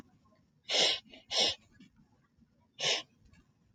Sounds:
Sniff